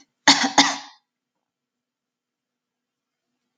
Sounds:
Cough